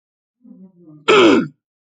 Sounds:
Throat clearing